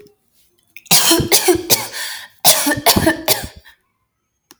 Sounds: Cough